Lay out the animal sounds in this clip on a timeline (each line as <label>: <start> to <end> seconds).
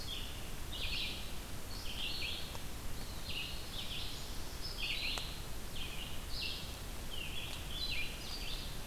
Red-eyed Vireo (Vireo olivaceus): 0.0 to 8.9 seconds
Eastern Wood-Pewee (Contopus virens): 2.9 to 3.9 seconds
Black-throated Blue Warbler (Setophaga caerulescens): 3.2 to 4.7 seconds